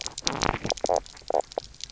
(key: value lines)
label: biophony, knock croak
recorder: SoundTrap 300